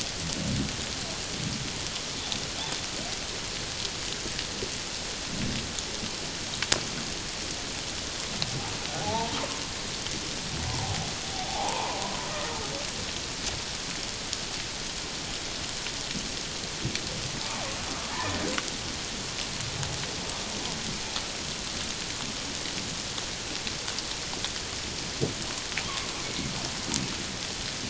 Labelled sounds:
9.0	9.4	humpback whale, 0.78 to 0.97 kHz
11.5	12.0	humpback whale, 0.78 to 1.1 kHz
17.4	18.4	humpback whale, 0.78 to 1.9 kHz
26.2	26.5	humpback whale, 2.1 to 2.3 kHz

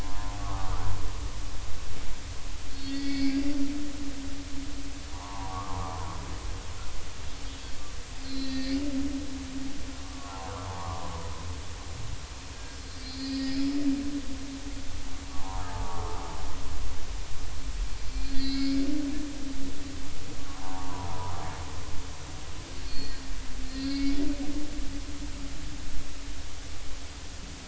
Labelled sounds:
0.0	0.7	humpback whale, 0.80 to 1.3 kHz
2.7	3.4	humpback whale, 1.9 to 4.6 kHz
5.1	5.8	humpback whale, 0.80 to 1.3 kHz
8.2	8.8	humpback whale, 1.8 to 4.4 kHz
10.0	11.0	humpback whale, 0.80 to 1.3 kHz
12.5	13.7	humpback whale, 1.5 to 5.2 kHz
15.3	15.6	humpback whale, 0.80 to 1.2 kHz
18.1	18.8	humpback whale, 2.1 to 5.0 kHz
20.5	21.5	humpback whale, 0.80 to 1.2 kHz
22.8	23.3	humpback whale, 4.2 to 4.7 kHz
23.7	24.2	humpback whale, 2.1 to 4.8 kHz

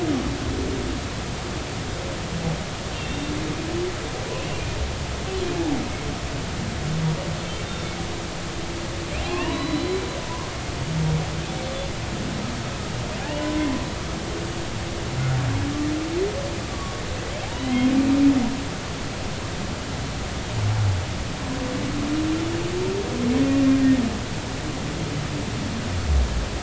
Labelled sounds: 2.9	3.3	humpback whale, 2.7 to 3.7 kHz
7.6	7.9	humpback whale, 3.5 to 3.7 kHz
9.2	10.0	humpback whale, 0.80 to 4.1 kHz
13.3	13.6	humpback whale, 2.7 to 3.1 kHz
16.7	17.0	humpback whale, 1.1 to 1.2 kHz
17.5	17.9	humpback whale, 1.9 to 3.3 kHz

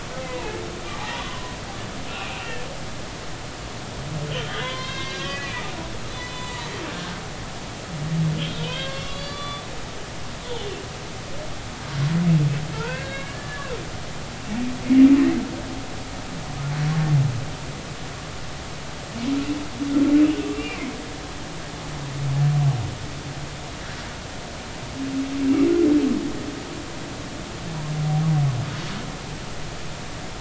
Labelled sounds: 0.3	0.6	humpback whale, 0.80 to 1.1 kHz
1.0	2.6	humpback whale, 0.80 to 2.9 kHz
4.3	7.2	humpback whale, 0.90 to 5.4 kHz
8.6	9.6	humpback whale, 1.1 to 4.7 kHz
10.5	10.7	humpback whale, 3.5 to 3.6 kHz
12.7	13.7	humpback whale, 0.86 to 3.9 kHz
20.5	20.8	humpback whale, 2.7 to 2.9 kHz

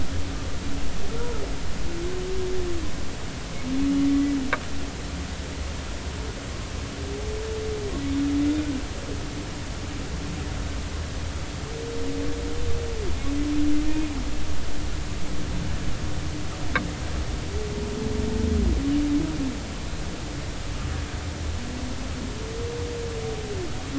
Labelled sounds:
4.0	4.3	humpback whale, 1.9 to 2.0 kHz

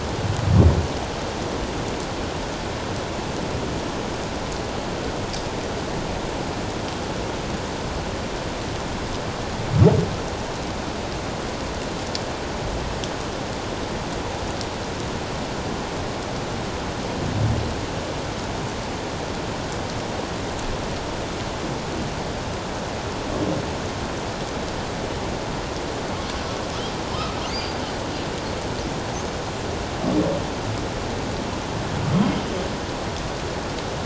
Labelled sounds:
27.5	27.8	humpback whale, 4.5 to 4.9 kHz

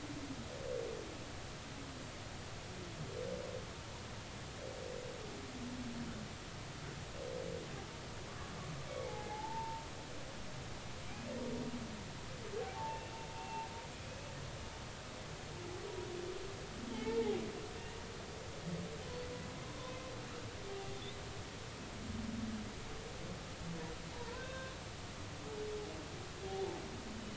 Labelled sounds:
9.0	9.8	humpback whale, 0.80 to 2.3 kHz
12.6	13.0	humpback whale, 0.80 to 0.96 kHz
13.4	13.7	humpback whale, 0.80 to 1.0 kHz
14.4	14.6	humpback whale, 2.6 to 2.8 kHz
16.9	17.4	humpback whale, 0.80 to 2.3 kHz
20.9	21.2	humpback whale, 3.4 to 4.0 kHz
24.3	24.8	humpback whale, 1.0 to 3.7 kHz

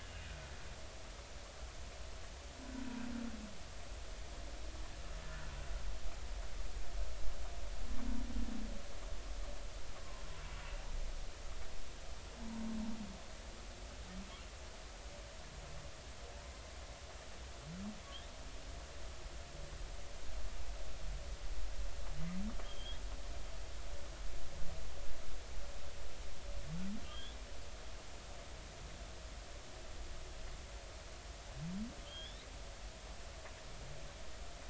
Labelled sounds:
0.1	0.4	humpback whale, 2.4 to 2.6 kHz
10.0	10.2	humpback whale, 0.93 to 1.1 kHz
22.6	23.0	humpback whale, 3.1 to 3.5 kHz
27.0	27.4	humpback whale, 1.5 to 3.6 kHz
32.0	32.5	humpback whale, 3.0 to 3.9 kHz

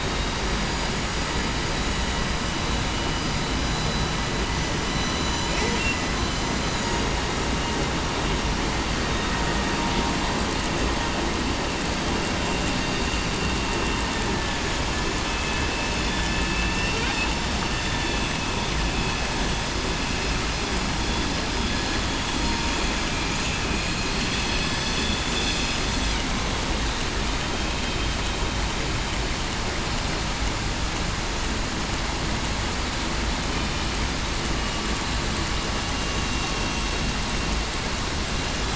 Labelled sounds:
0.5	0.9	vessel noise, 4.8 to 4.9 kHz
3.6	4.1	vessel noise, 3.9 to 4.0 kHz
15.3	15.7	vessel noise, 2.55 to 2.65 kHz
16.5	17.0	vessel noise, 2.6 to 2.8 kHz

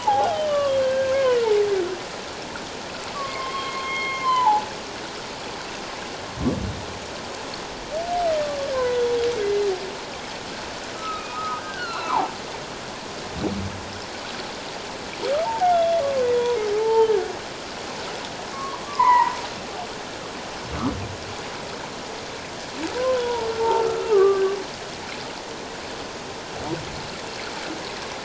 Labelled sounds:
0.0	1.5	humpback whale, 0.78 to 3.4 kHz
3.1	4.7	humpback whale, 0.78 to 3.3 kHz
8.7	9.2	humpback whale, 0.94 to 3.5 kHz
10.9	12.3	humpback whale, 0.78 to 4.4 kHz
15.4	16.0	humpback whale, 0.78 to 3.5 kHz
16.7	17.1	humpback whale, 0.81 to 0.97 kHz
18.5	19.3	humpback whale, 0.81 to 2.2 kHz
23.0	24.4	humpback whale, 0.78 to 1.6 kHz

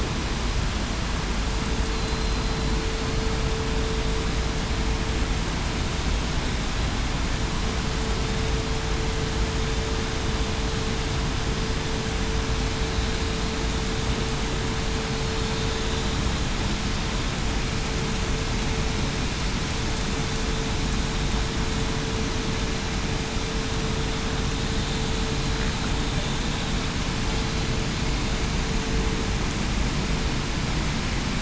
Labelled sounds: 1.9	2.4	killer whale, southern resident, 4.1 to 4.2 kHz

